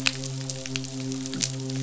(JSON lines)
{"label": "biophony, midshipman", "recorder": "SoundTrap 500"}